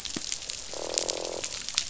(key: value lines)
label: biophony, croak
recorder: SoundTrap 500